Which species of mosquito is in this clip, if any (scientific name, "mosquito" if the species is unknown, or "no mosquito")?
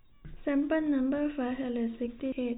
no mosquito